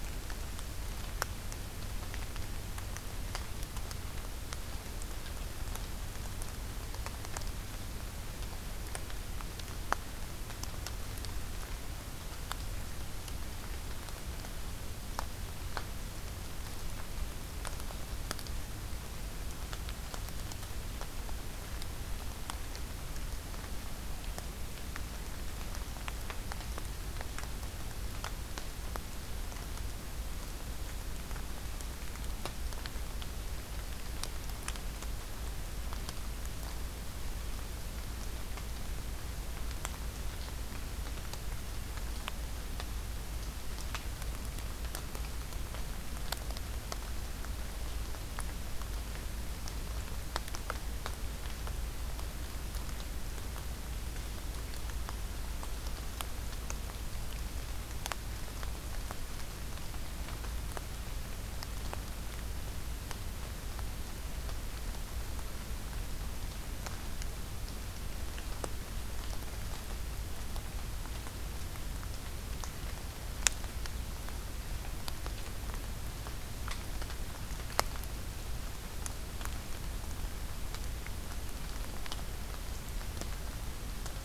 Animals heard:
forest ambience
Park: Acadia National Park